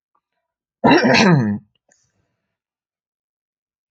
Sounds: Cough